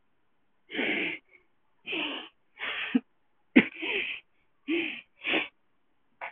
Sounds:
Sniff